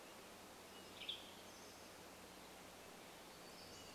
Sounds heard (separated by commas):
Western Tanager call, Pacific-slope Flycatcher call, warbler song